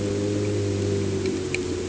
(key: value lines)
label: anthrophony, boat engine
recorder: HydroMoth